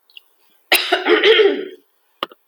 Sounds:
Throat clearing